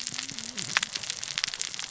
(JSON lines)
{"label": "biophony, cascading saw", "recorder": "SoundTrap 600 or HydroMoth"}